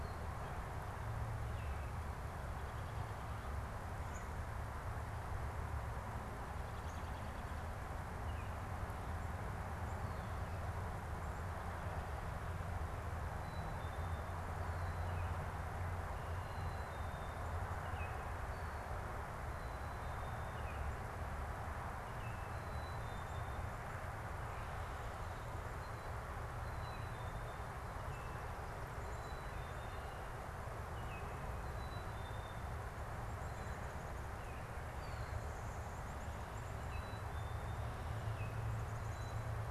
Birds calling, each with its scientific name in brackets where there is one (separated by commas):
Baltimore Oriole (Icterus galbula), Black-capped Chickadee (Poecile atricapillus)